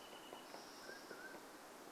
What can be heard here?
Mountain Quail call, Spotted Towhee song, Wrentit song, woodpecker drumming